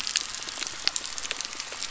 {"label": "anthrophony, boat engine", "recorder": "SoundTrap 300"}
{"label": "biophony", "recorder": "SoundTrap 300"}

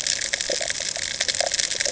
{"label": "ambient", "recorder": "HydroMoth"}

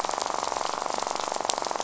{"label": "biophony, rattle", "recorder": "SoundTrap 500"}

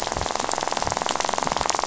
{"label": "biophony, rattle", "recorder": "SoundTrap 500"}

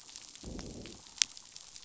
{"label": "biophony, growl", "recorder": "SoundTrap 500"}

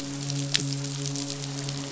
{"label": "biophony, midshipman", "recorder": "SoundTrap 500"}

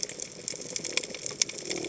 {"label": "biophony", "recorder": "HydroMoth"}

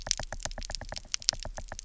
{"label": "biophony, knock", "recorder": "SoundTrap 300"}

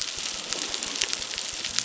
{"label": "biophony", "recorder": "SoundTrap 600"}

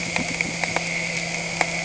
{"label": "anthrophony, boat engine", "recorder": "HydroMoth"}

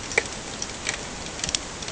{"label": "ambient", "recorder": "HydroMoth"}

